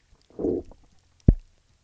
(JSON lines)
{"label": "biophony, low growl", "recorder": "SoundTrap 300"}